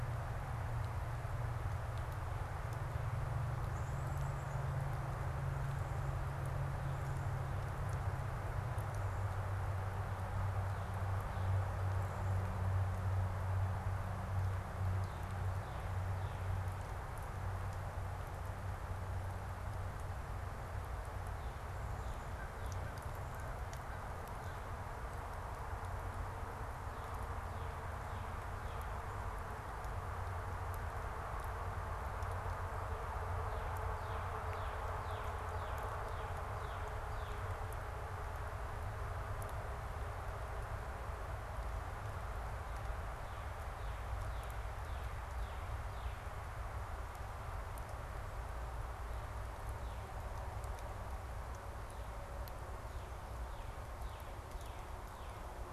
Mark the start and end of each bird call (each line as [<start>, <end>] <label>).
[3.31, 5.41] Black-capped Chickadee (Poecile atricapillus)
[13.81, 16.71] Northern Cardinal (Cardinalis cardinalis)
[22.21, 25.11] American Crow (Corvus brachyrhynchos)
[26.51, 29.31] Northern Cardinal (Cardinalis cardinalis)
[33.11, 37.91] Northern Cardinal (Cardinalis cardinalis)
[42.31, 46.51] Northern Cardinal (Cardinalis cardinalis)
[52.81, 55.71] Northern Cardinal (Cardinalis cardinalis)